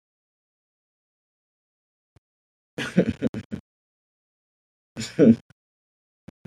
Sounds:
Laughter